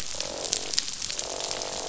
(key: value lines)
label: biophony, croak
recorder: SoundTrap 500